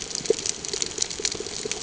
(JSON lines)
{"label": "ambient", "recorder": "HydroMoth"}